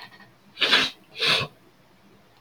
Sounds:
Sniff